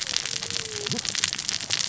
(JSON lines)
{"label": "biophony, cascading saw", "recorder": "SoundTrap 600 or HydroMoth"}